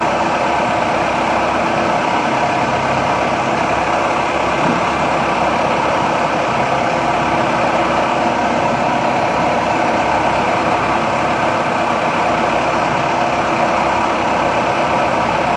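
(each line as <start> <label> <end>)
0.0 A boat engine rumbles steadily. 15.6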